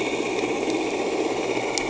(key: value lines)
label: anthrophony, boat engine
recorder: HydroMoth